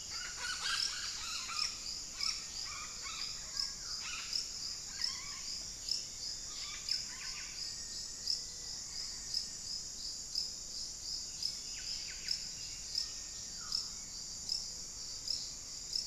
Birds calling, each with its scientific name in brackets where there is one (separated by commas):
Black-faced Antthrush (Formicarius analis), Buff-breasted Wren (Cantorchilus leucotis), Red-bellied Macaw (Orthopsittaca manilatus), unidentified bird, Little Tinamou (Crypturellus soui)